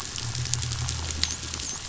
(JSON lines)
{"label": "biophony, dolphin", "recorder": "SoundTrap 500"}